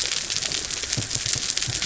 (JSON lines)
{"label": "biophony", "recorder": "SoundTrap 300"}